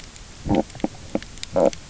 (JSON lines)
{"label": "biophony, stridulation", "recorder": "SoundTrap 300"}